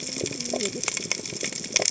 {"label": "biophony, cascading saw", "recorder": "HydroMoth"}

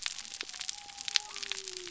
{"label": "biophony", "recorder": "SoundTrap 300"}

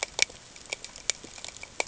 {"label": "ambient", "recorder": "HydroMoth"}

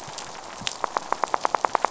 {"label": "biophony, knock", "recorder": "SoundTrap 500"}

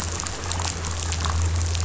{"label": "anthrophony, boat engine", "recorder": "SoundTrap 500"}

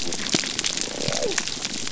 {"label": "biophony", "recorder": "SoundTrap 300"}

